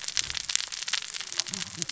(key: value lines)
label: biophony, cascading saw
recorder: SoundTrap 600 or HydroMoth